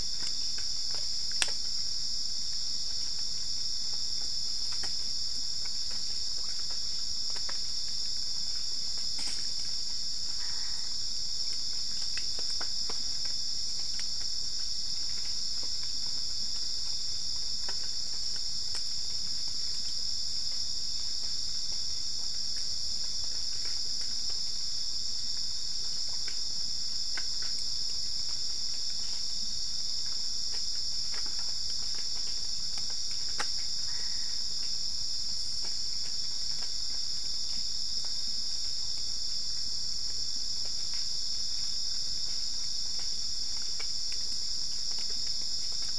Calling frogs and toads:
Boana albopunctata
5:00am

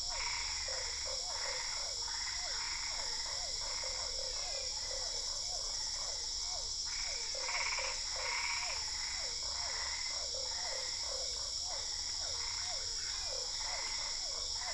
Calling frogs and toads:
Boana lundii, Physalaemus cuvieri, Boana albopunctata, Physalaemus marmoratus, Dendropsophus cruzi
8:45pm

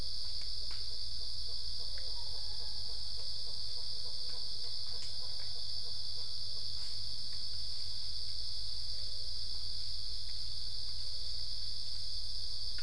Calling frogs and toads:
none
5:00am

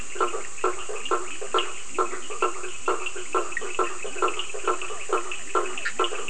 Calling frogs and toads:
Boana faber, Leptodactylus latrans, Sphaenorhynchus surdus, Boana bischoffi, Physalaemus cuvieri
10:00pm

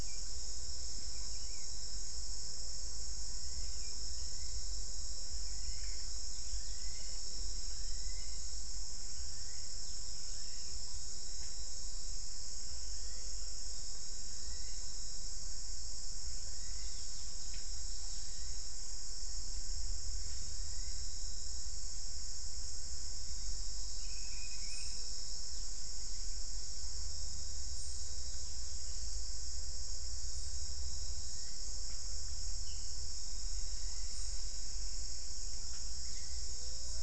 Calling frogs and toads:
none
5:45pm

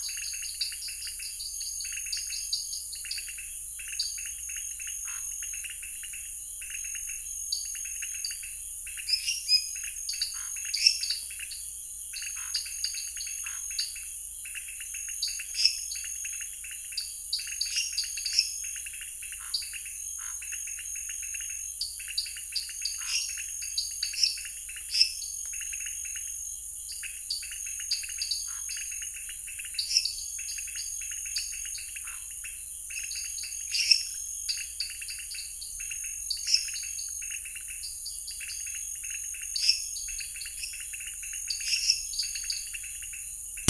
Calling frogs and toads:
Dendropsophus nanus, Leptodactylus podicipinus, Scinax fuscovarius, Dendropsophus minutus
8:30pm

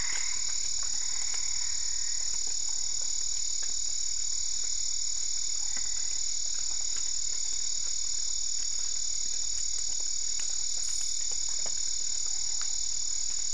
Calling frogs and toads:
Boana albopunctata
9:30pm

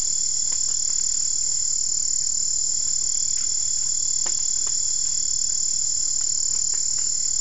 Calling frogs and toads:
none
4:15am

